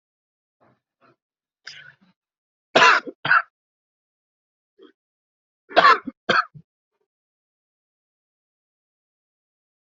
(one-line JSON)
{"expert_labels": [{"quality": "good", "cough_type": "dry", "dyspnea": false, "wheezing": false, "stridor": false, "choking": false, "congestion": false, "nothing": true, "diagnosis": "upper respiratory tract infection", "severity": "mild"}], "age": 50, "gender": "male", "respiratory_condition": false, "fever_muscle_pain": false, "status": "symptomatic"}